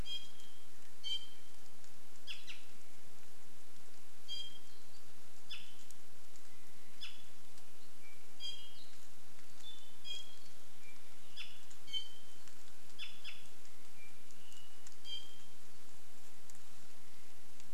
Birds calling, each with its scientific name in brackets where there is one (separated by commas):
Iiwi (Drepanis coccinea)